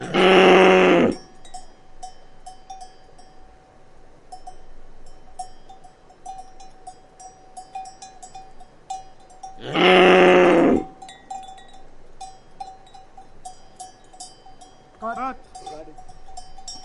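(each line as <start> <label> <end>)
0.0 A cow is mooing loudly nearby. 1.3
0.0 The soft clinking of cowbells in a field. 3.5
4.3 The soft clinking of cowbells in a field. 16.8
9.6 A cow is mooing loudly nearby. 10.9
15.0 Two people talking indistinctly nearby. 15.9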